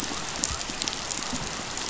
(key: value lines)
label: biophony
recorder: SoundTrap 500